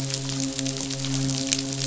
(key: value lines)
label: biophony, midshipman
recorder: SoundTrap 500